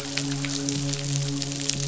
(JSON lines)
{"label": "biophony, midshipman", "recorder": "SoundTrap 500"}